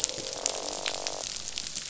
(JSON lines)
{"label": "biophony, croak", "recorder": "SoundTrap 500"}